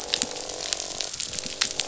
{"label": "biophony, croak", "recorder": "SoundTrap 500"}
{"label": "biophony", "recorder": "SoundTrap 500"}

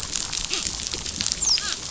{"label": "biophony, dolphin", "recorder": "SoundTrap 500"}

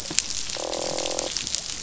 {"label": "biophony, croak", "recorder": "SoundTrap 500"}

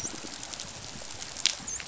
{"label": "biophony, dolphin", "recorder": "SoundTrap 500"}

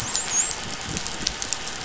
{"label": "biophony, dolphin", "recorder": "SoundTrap 500"}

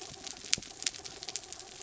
{"label": "anthrophony, mechanical", "recorder": "SoundTrap 300"}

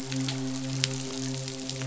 {"label": "biophony, midshipman", "recorder": "SoundTrap 500"}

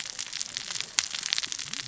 {"label": "biophony, cascading saw", "recorder": "SoundTrap 600 or HydroMoth"}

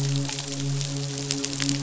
{"label": "biophony, midshipman", "recorder": "SoundTrap 500"}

